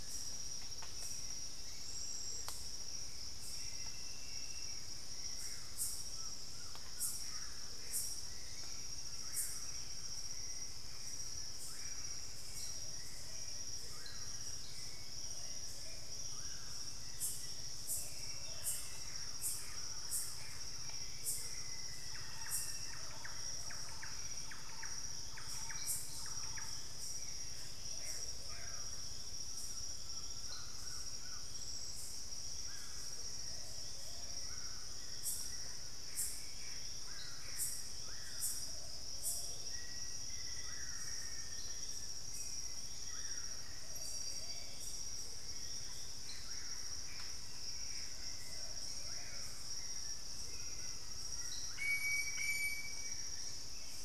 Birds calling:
Gray Antbird (Cercomacra cinerascens), Ringed Woodpecker (Celeus torquatus), unidentified bird, Thrush-like Wren (Campylorhynchus turdinus), Plumbeous Pigeon (Patagioenas plumbea), Screaming Piha (Lipaugus vociferans), Long-winged Antwren (Myrmotherula longipennis), Collared Trogon (Trogon collaris), Hauxwell's Thrush (Turdus hauxwelli), Black-faced Antthrush (Formicarius analis), Western Striolated-Puffbird (Nystalus obamai)

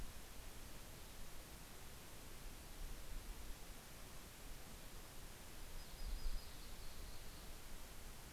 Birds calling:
Yellow-rumped Warbler (Setophaga coronata)

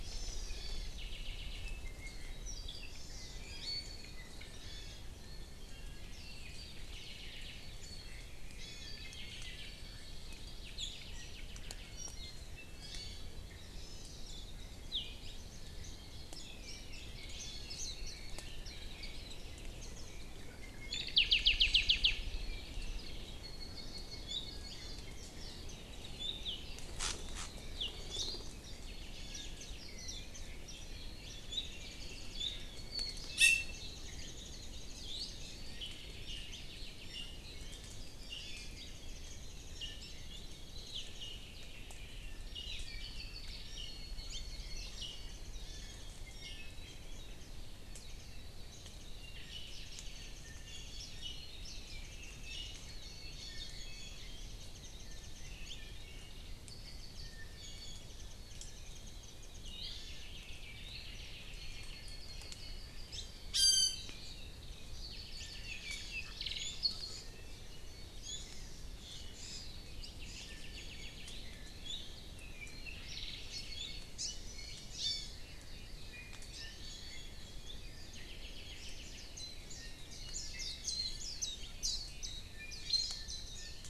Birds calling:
Hawaii Creeper (Loxops mana), Omao (Myadestes obscurus), Hawaii Amakihi (Chlorodrepanis virens), Hawaii Akepa (Loxops coccineus), Warbling White-eye (Zosterops japonicus), Apapane (Himatione sanguinea), Iiwi (Drepanis coccinea), Chinese Hwamei (Garrulax canorus)

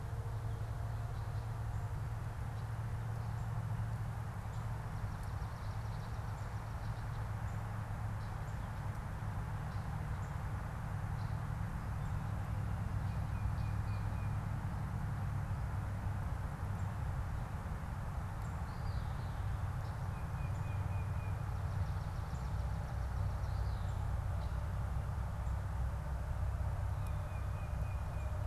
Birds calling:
Tufted Titmouse (Baeolophus bicolor)

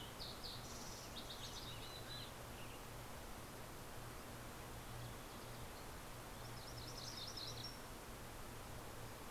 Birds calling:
MacGillivray's Warbler (Geothlypis tolmiei), Fox Sparrow (Passerella iliaca), Western Tanager (Piranga ludoviciana)

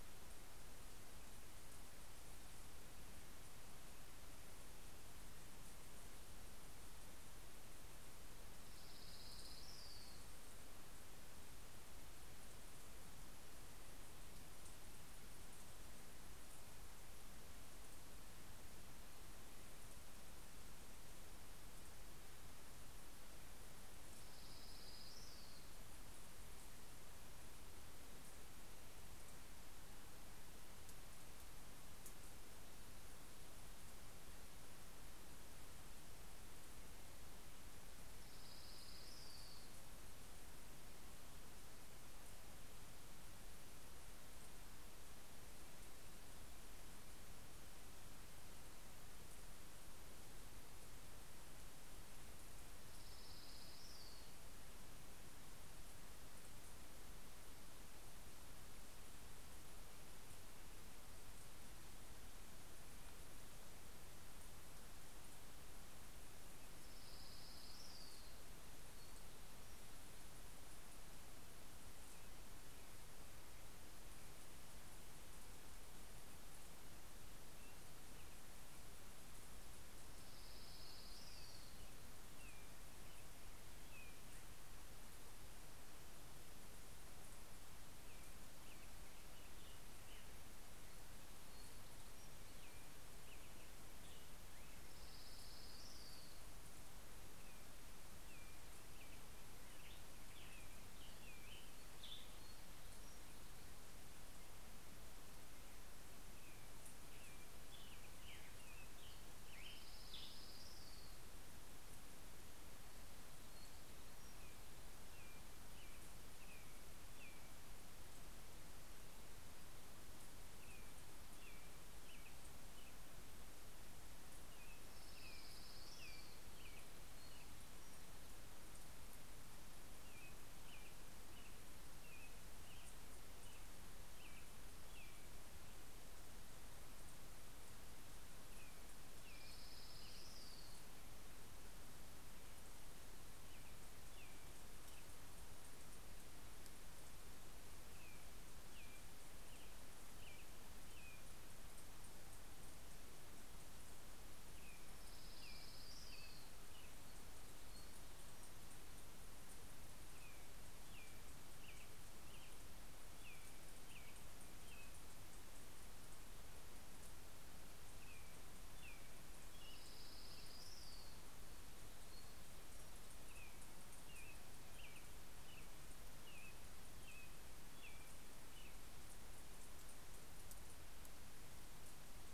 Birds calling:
Orange-crowned Warbler (Leiothlypis celata), Black-headed Grosbeak (Pheucticus melanocephalus), American Robin (Turdus migratorius)

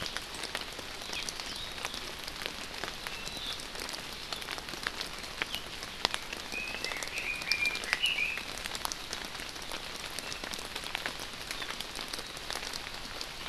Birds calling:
Iiwi (Drepanis coccinea), Red-billed Leiothrix (Leiothrix lutea)

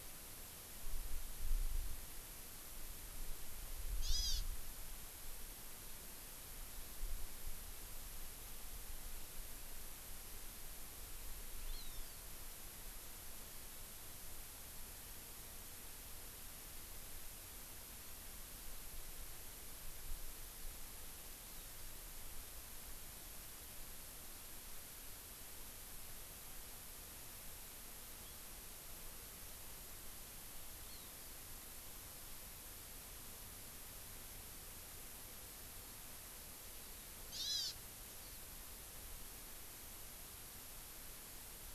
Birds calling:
Hawaii Amakihi (Chlorodrepanis virens)

